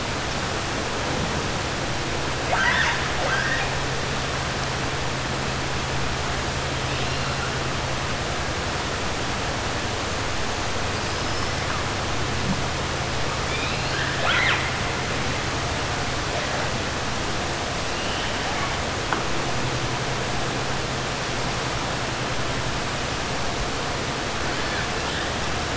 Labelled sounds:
2.4	3.7	killer whale, 0.53 to 6.2 kHz
11.0	11.5	killer whale, 4.8 to 5.4 kHz
13.4	14.7	killer whale, 0.69 to 4.5 kHz

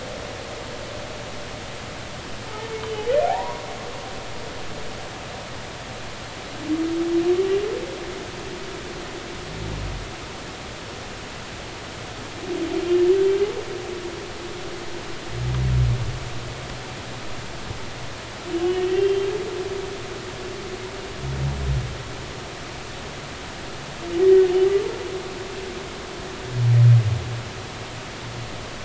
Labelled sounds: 2.8	3.6	humpback whale, 0.80 to 3.1 kHz
19.0	19.3	humpback whale, 3.1 to 3.2 kHz

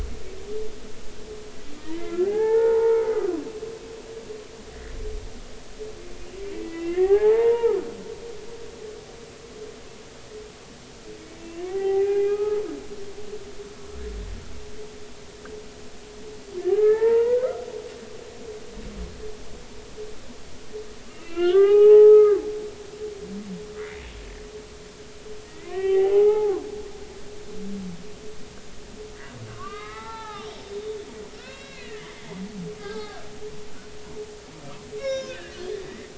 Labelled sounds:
1.8	3.4	humpback whale, 0.80 to 2.2 kHz
6.5	7.8	humpback whale, 0.80 to 2.9 kHz
11.4	12.6	humpback whale, 0.80 to 2.9 kHz
16.7	17.5	humpback whale, 0.83 to 2.2 kHz
21.1	22.4	humpback whale, 0.80 to 3.1 kHz
23.8	24.1	humpback whale, 1.9 to 2.4 kHz
25.5	26.7	humpback whale, 0.80 to 3.1 kHz
29.5	30.5	humpback whale, 0.80 to 4.1 kHz
31.4	32.1	humpback whale, 1.7 to 3.9 kHz
32.8	33.2	humpback whale, 0.80 to 1.4 kHz
35.0	35.4	humpback whale, 0.99 to 7.1 kHz
35.7	36.1	humpback whale, 1.7 to 2.1 kHz

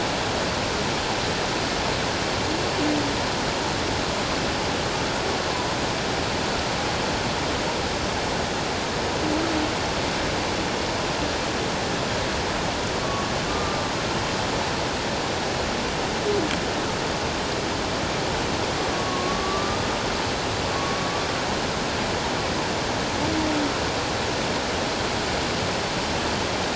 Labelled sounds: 13.5	13.8	humpback whale, 1.1 to 1.2 kHz
18.9	19.8	humpback whale, 1.0 to 1.2 kHz
20.7	21.0	humpback whale, 1.1 to 1.2 kHz

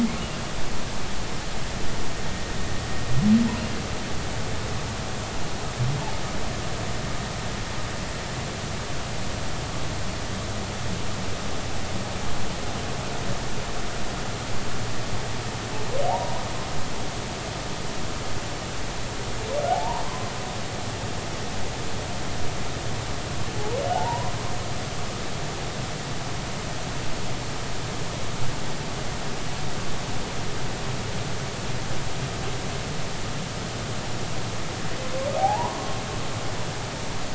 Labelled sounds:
16.1	16.3	humpback whale, 0.80 to 0.99 kHz
19.7	20.3	humpback whale, 0.80 to 1.2 kHz
23.9	24.3	humpback whale, 0.80 to 1.1 kHz
35.4	35.8	humpback whale, 0.80 to 1.1 kHz

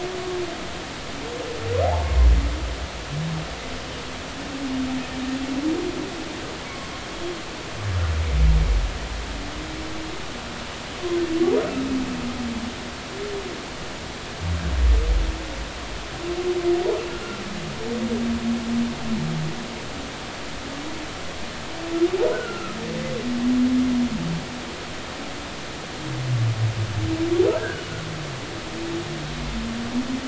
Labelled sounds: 11.6	11.9	humpback whale, 1.2 to 1.5 kHz
22.3	22.8	humpback whale, 1.2 to 1.6 kHz
27.6	27.8	humpback whale, 1.3 to 1.7 kHz

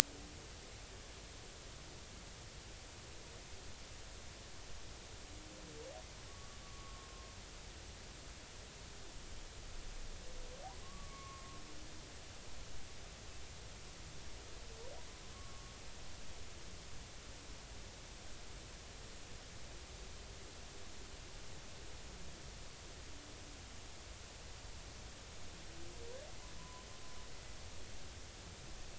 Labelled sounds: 6.6	7.3	humpback whale, 1.0 to 1.2 kHz
10.8	11.6	humpback whale, 1.0 to 2.3 kHz
15.3	15.7	humpback whale, 1.0 to 1.2 kHz
26.6	26.9	humpback whale, 0.96 to 1.1 kHz

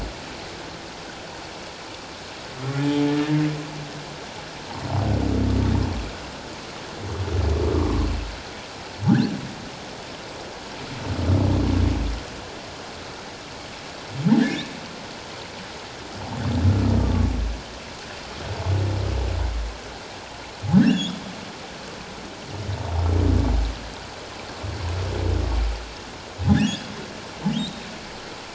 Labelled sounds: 7.7	8.0	humpback whale, 1.0 to 1.2 kHz
9.1	9.3	humpback whale, 1.4 to 1.8 kHz
14.4	14.7	humpback whale, 1.5 to 1.9 kHz
17.0	17.3	humpback whale, 1.1 to 1.3 kHz
20.7	21.2	humpback whale, 1.5 to 3.8 kHz
26.5	27.8	humpback whale, 1.4 to 4.1 kHz

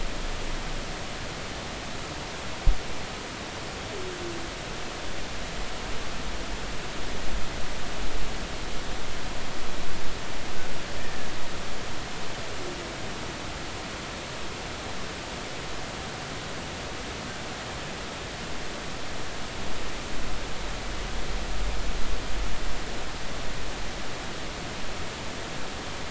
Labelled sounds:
11.0	11.3	killer whale, Bigg's (transient), 1.6 to 2.0 kHz

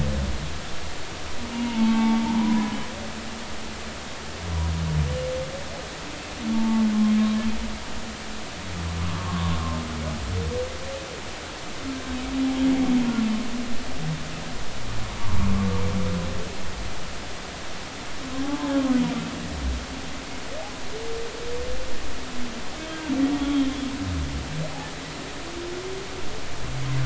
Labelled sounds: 1.5	2.9	humpback whale, 0.80 to 2.9 kHz
6.5	6.9	humpback whale, 0.83 to 0.96 kHz
10.0	10.6	humpback whale, 0.93 to 1.3 kHz
18.4	18.8	humpback whale, 0.80 to 0.93 kHz
23.5	23.8	humpback whale, 3.1 to 3.3 kHz

